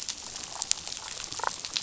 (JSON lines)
{"label": "biophony, damselfish", "recorder": "SoundTrap 500"}